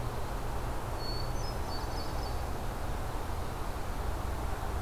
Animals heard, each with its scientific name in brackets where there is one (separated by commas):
Hermit Thrush (Catharus guttatus)